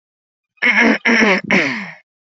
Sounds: Throat clearing